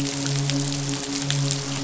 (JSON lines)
{"label": "biophony, midshipman", "recorder": "SoundTrap 500"}